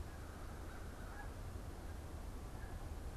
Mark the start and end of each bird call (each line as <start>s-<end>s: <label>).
0.0s-3.2s: unidentified bird
0.0s-1.2s: American Crow (Corvus brachyrhynchos)